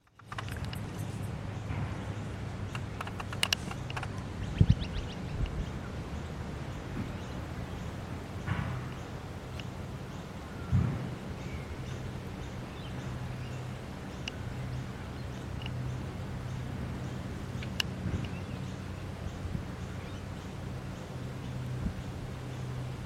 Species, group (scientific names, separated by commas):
Yoyetta celis, Cicadidae